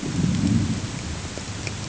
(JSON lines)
{"label": "anthrophony, boat engine", "recorder": "HydroMoth"}